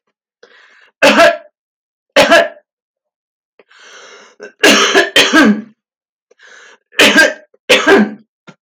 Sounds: Cough